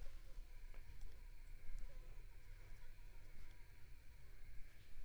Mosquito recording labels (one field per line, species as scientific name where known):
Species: Anopheles arabiensis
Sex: female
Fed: unfed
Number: one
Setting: cup